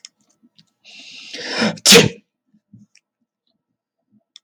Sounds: Sneeze